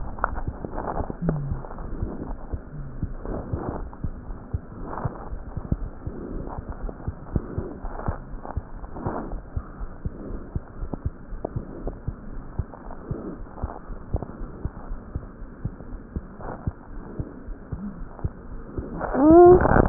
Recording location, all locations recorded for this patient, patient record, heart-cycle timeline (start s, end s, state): aortic valve (AV)
aortic valve (AV)+pulmonary valve (PV)+tricuspid valve (TV)+mitral valve (MV)
#Age: Child
#Sex: Female
#Height: 80.0 cm
#Weight: 10.7 kg
#Pregnancy status: False
#Murmur: Absent
#Murmur locations: nan
#Most audible location: nan
#Systolic murmur timing: nan
#Systolic murmur shape: nan
#Systolic murmur grading: nan
#Systolic murmur pitch: nan
#Systolic murmur quality: nan
#Diastolic murmur timing: nan
#Diastolic murmur shape: nan
#Diastolic murmur grading: nan
#Diastolic murmur pitch: nan
#Diastolic murmur quality: nan
#Outcome: Abnormal
#Campaign: 2015 screening campaign
0.00	11.84	unannotated
11.84	11.96	S1
11.96	12.06	systole
12.06	12.16	S2
12.16	12.32	diastole
12.32	12.45	S1
12.45	12.58	systole
12.58	12.69	S2
12.69	12.86	diastole
12.86	13.02	S1
13.02	13.07	systole
13.07	13.20	S2
13.20	13.36	diastole
13.36	13.50	S1
13.50	13.58	systole
13.58	13.72	S2
13.72	13.85	diastole
13.85	13.98	S1
13.98	14.08	systole
14.08	14.20	S2
14.20	14.37	diastole
14.37	14.52	S1
14.52	14.60	systole
14.60	14.74	S2
14.74	14.87	diastole
14.87	15.00	S1
15.00	15.10	systole
15.10	15.24	S2
15.24	15.38	diastole
15.38	15.52	S1
15.52	15.62	systole
15.62	15.74	S2
15.74	15.89	diastole
15.89	16.06	S1
16.06	16.12	systole
16.12	16.26	S2
16.26	16.41	diastole
16.41	16.58	S1
16.58	16.66	systole
16.66	16.80	S2
16.80	16.91	diastole
16.91	17.10	S1
17.10	17.16	systole
17.16	17.28	S2
17.28	17.46	diastole
17.46	17.60	S1
17.60	17.68	systole
17.68	17.80	S2
17.80	17.98	diastole
17.98	18.10	S1
18.10	18.20	systole
18.20	18.34	S2
18.34	18.50	diastole
18.50	18.62	S1
18.62	18.76	systole
18.76	18.92	S2
18.92	19.06	diastole
19.06	19.89	unannotated